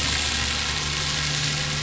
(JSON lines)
{"label": "anthrophony, boat engine", "recorder": "SoundTrap 500"}